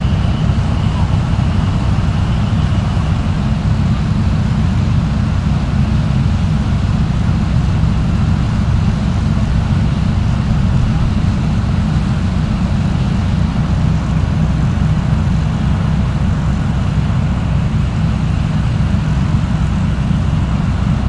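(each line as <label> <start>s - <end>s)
Heavy military vehicles produce a steady engine rumble. 0.0s - 21.1s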